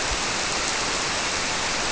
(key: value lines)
label: biophony
recorder: SoundTrap 300